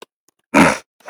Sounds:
Throat clearing